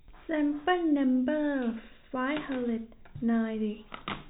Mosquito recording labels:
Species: no mosquito; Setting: cup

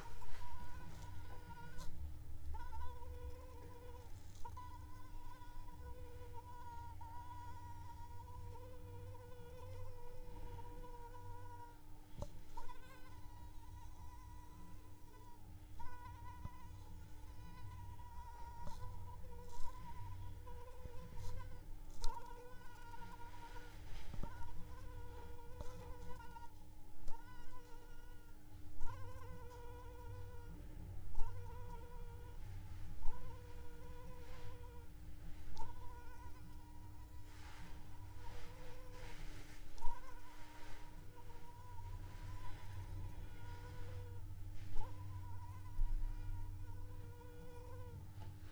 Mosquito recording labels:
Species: Anopheles arabiensis; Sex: female; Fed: unfed; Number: one; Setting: cup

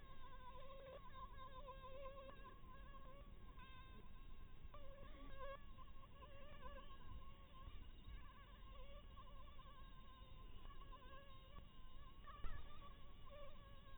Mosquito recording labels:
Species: Anopheles maculatus; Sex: female; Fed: blood-fed; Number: one; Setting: cup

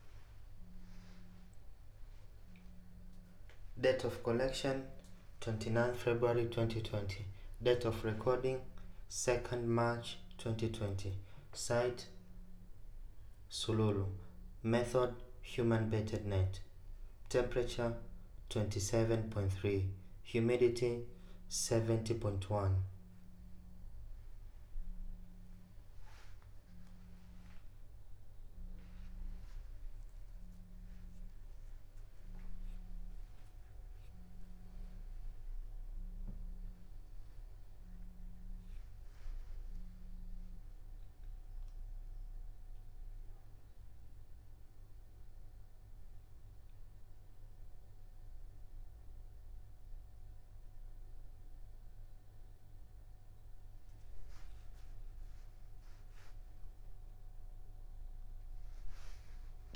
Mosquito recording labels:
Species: no mosquito; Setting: cup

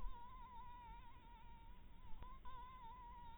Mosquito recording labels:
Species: Anopheles harrisoni; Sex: female; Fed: blood-fed; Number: one; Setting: cup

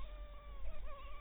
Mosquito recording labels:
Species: Anopheles dirus; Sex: female; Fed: blood-fed; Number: one; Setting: cup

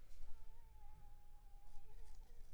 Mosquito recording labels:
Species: Anopheles funestus s.s.; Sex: female; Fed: unfed; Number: one; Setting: cup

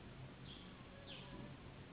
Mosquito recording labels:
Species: Anopheles gambiae s.s.; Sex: female; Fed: unfed; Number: one; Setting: insect culture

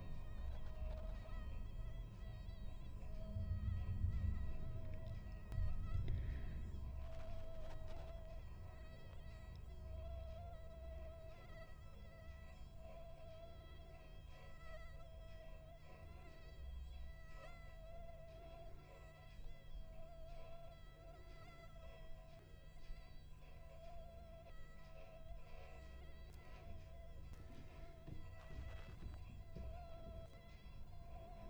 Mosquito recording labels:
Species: Anopheles stephensi; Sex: male; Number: one; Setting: cup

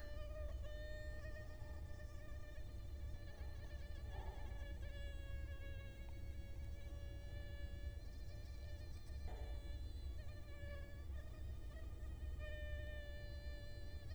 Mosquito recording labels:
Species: Culex quinquefasciatus; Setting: cup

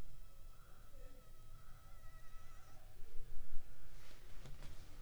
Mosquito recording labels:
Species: Anopheles funestus s.s.; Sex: female; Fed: unfed; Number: one; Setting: cup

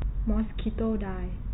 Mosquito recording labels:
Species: mosquito; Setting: cup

